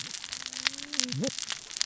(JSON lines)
{"label": "biophony, cascading saw", "recorder": "SoundTrap 600 or HydroMoth"}